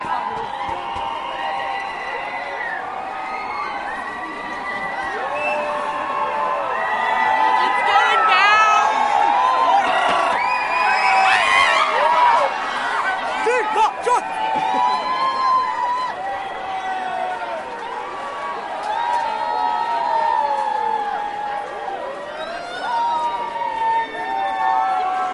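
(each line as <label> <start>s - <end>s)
Cheering at varying pitches. 0.0s - 25.3s
A woman is exclaiming. 7.4s - 9.8s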